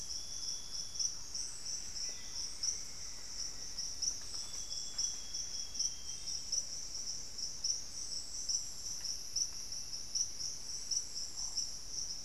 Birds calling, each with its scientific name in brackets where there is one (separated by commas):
Thrush-like Wren (Campylorhynchus turdinus), Buff-breasted Wren (Cantorchilus leucotis), Black-faced Antthrush (Formicarius analis), Amazonian Grosbeak (Cyanoloxia rothschildii)